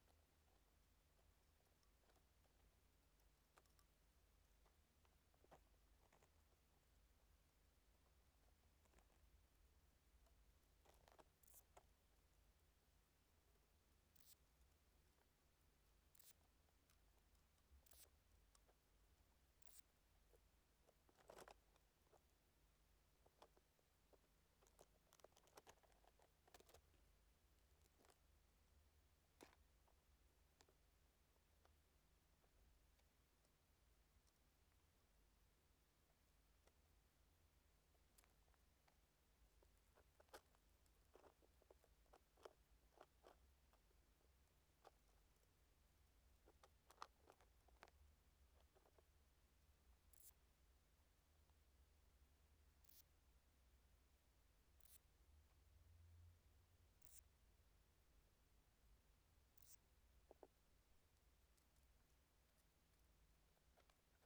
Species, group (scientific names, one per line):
Odontura macphersoni
Orthoptera